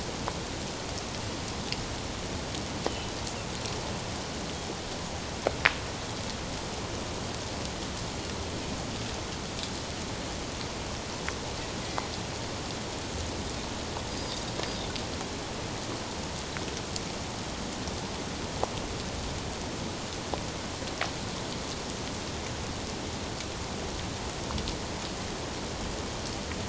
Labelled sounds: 2.9	3.1	Pacific white-sided dolphin, 2.9 to 3.2 kHz
14.1	14.4	Pacific white-sided dolphin, 4.6 to 5.1 kHz

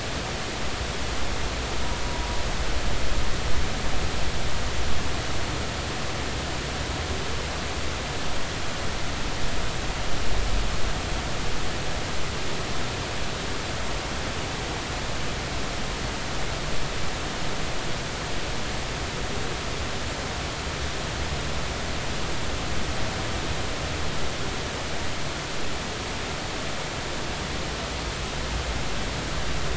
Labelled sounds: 2.0	2.4	humpback whale, 0.93 to 0.99 kHz

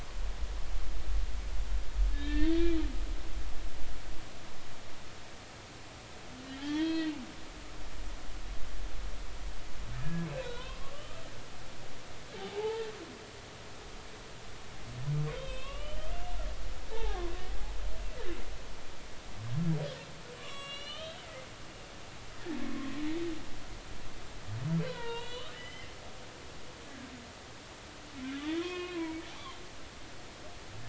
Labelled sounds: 2.1	2.7	humpback whale, 1.5 to 2.0 kHz
6.6	7.1	humpback whale, 0.80 to 3.9 kHz
10.0	11.2	humpback whale, 0.99 to 3.7 kHz
12.3	12.9	humpback whale, 0.80 to 0.96 kHz
15.3	16.1	humpback whale, 1.0 to 3.9 kHz
16.9	17.2	humpback whale, 0.80 to 0.96 kHz
20.4	21.2	humpback whale, 1.0 to 8.0 kHz
22.6	22.9	humpback whale, 1.0 to 1.2 kHz
24.8	25.9	humpback whale, 0.86 to 4.1 kHz
28.6	29.2	humpback whale, 1.0 to 3.3 kHz

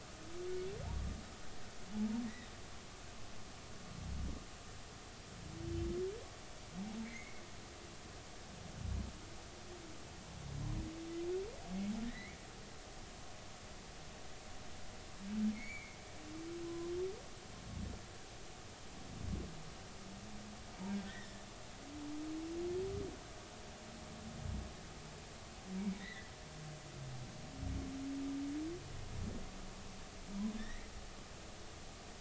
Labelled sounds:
7.0	7.4	humpback whale, 1.9 to 2.3 kHz
12.0	12.4	humpback whale, 1.7 to 2.4 kHz
15.5	16.0	humpback whale, 1.9 to 2.4 kHz
16.6	16.9	humpback whale, 0.96 to 1.1 kHz
21.1	21.4	humpback whale, 1.7 to 2.0 kHz
26.0	26.3	humpback whale, 1.6 to 2.2 kHz
30.6	30.9	humpback whale, 1.7 to 2.3 kHz

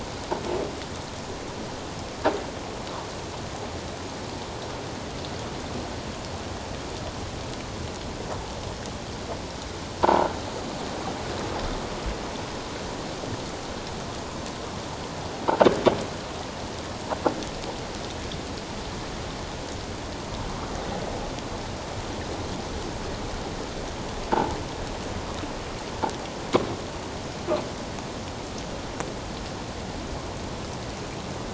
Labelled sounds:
10.0	10.3	croaking sound likely from a nearby submerged object, 0.81 to 1.0 kHz

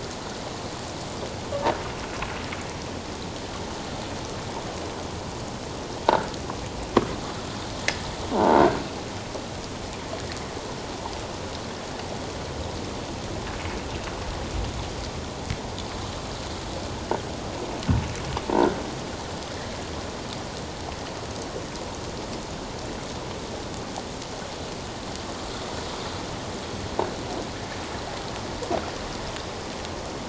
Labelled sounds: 6.1	6.3	croaking sound likely from a nearby submerged object, 1.2 to 1.6 kHz
8.3	8.6	croaking sound likely from a nearby submerged object, 0.81 to 0.97 kHz

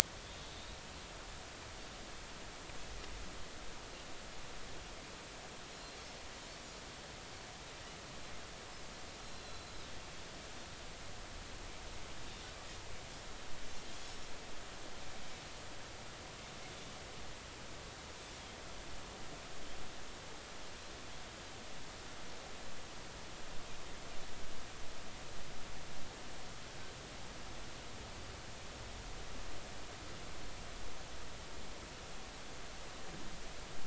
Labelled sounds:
9.2	9.7	Pacific white-sided dolphin, 3.9 to 4.2 kHz
14.0	14.3	Pacific white-sided dolphin, 5.3 to 5.5 kHz

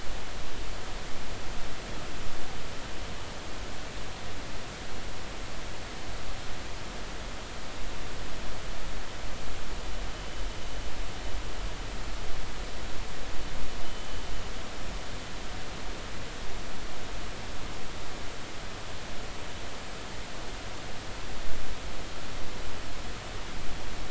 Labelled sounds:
13.8	14.1	vessel noise, 2.9 to 3.1 kHz

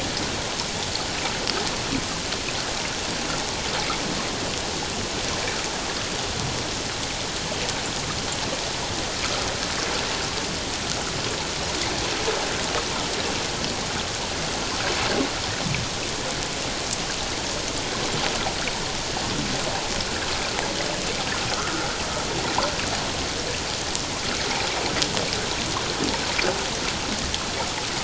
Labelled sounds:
21.5	21.9	water noise, 1.2 to 1.5 kHz

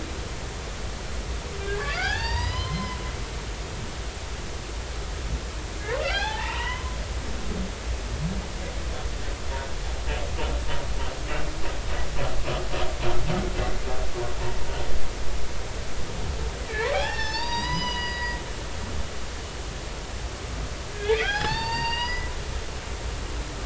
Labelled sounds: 1.6	3.9	humpback whale, 0.80 to 5.2 kHz
6.0	7.3	humpback whale, 0.80 to 5.9 kHz
16.7	18.4	humpback whale, 0.80 to 6.4 kHz
20.9	22.4	humpback whale, 0.80 to 5.8 kHz

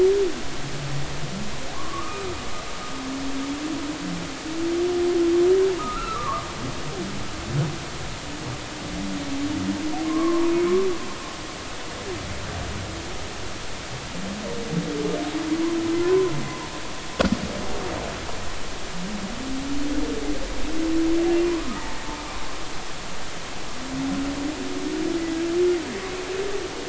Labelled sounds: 1.7	2.2	humpback whale, 0.96 to 1.3 kHz
5.8	6.4	humpback whale, 0.86 to 1.4 kHz
10.0	10.5	humpback whale, 0.93 to 1.2 kHz
16.0	16.3	humpback whale, 0.96 to 1.1 kHz
21.4	22.0	humpback whale, 0.83 to 1.3 kHz

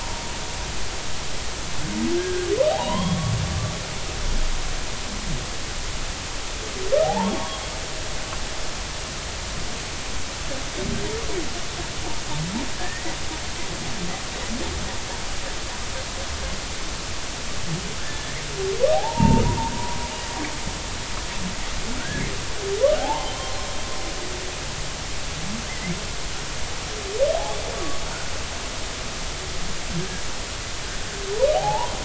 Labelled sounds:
2.2	3.2	humpback whale, 0.80 to 3.4 kHz
7.0	7.6	humpback whale, 0.80 to 1.2 kHz
12.7	13.2	humpback whale, 1.6 to 2.1 kHz
18.0	20.0	humpback whale, 0.80 to 2.8 kHz
22.0	22.3	humpback whale, 1.4 to 1.8 kHz
23.0	23.3	humpback whale, 0.80 to 1.1 kHz
25.7	25.9	humpback whale, 1.9 to 2.2 kHz
27.7	28.0	humpback whale, 1.1 to 1.2 kHz
31.5	31.9	humpback whale, 0.80 to 1.1 kHz

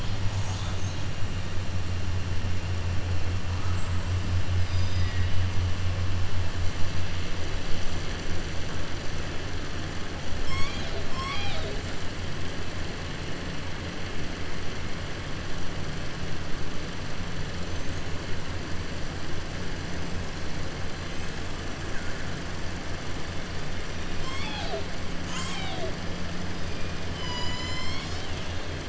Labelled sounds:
4.5	5.4	killer whale, southern resident, 1.8 to 6.2 kHz

